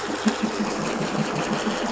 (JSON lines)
{"label": "anthrophony, boat engine", "recorder": "SoundTrap 500"}